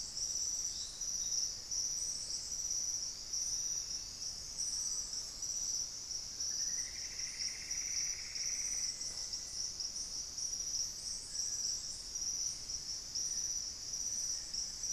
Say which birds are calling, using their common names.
unidentified bird, Plumbeous Antbird